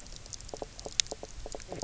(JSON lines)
{"label": "biophony, knock croak", "recorder": "SoundTrap 300"}